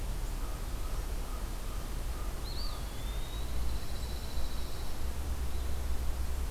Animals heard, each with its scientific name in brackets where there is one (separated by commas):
American Crow (Corvus brachyrhynchos), Eastern Wood-Pewee (Contopus virens), Pine Warbler (Setophaga pinus)